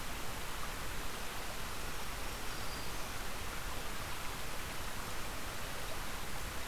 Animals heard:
Black-throated Green Warbler (Setophaga virens)

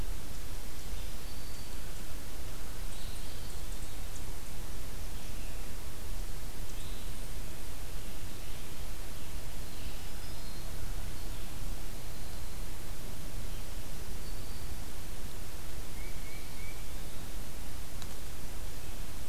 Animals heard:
Black-throated Green Warbler (Setophaga virens)
Tufted Titmouse (Baeolophus bicolor)
Eastern Wood-Pewee (Contopus virens)

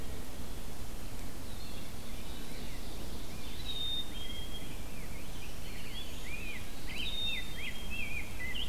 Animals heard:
Ovenbird (Seiurus aurocapilla)
Black-capped Chickadee (Poecile atricapillus)
Eastern Wood-Pewee (Contopus virens)
Rose-breasted Grosbeak (Pheucticus ludovicianus)
Black-throated Green Warbler (Setophaga virens)

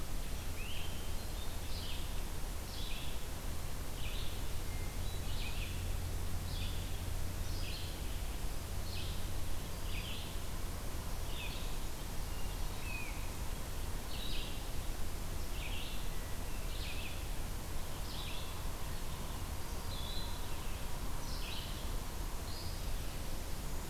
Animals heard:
Black-throated Green Warbler (Setophaga virens)
Hermit Thrush (Catharus guttatus)
Red-eyed Vireo (Vireo olivaceus)
Great Crested Flycatcher (Myiarchus crinitus)

